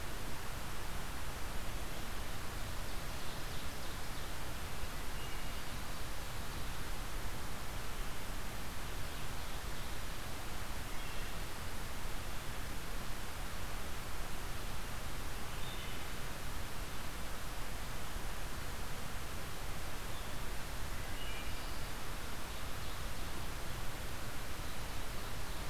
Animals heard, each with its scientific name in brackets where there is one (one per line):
Ovenbird (Seiurus aurocapilla)
Wood Thrush (Hylocichla mustelina)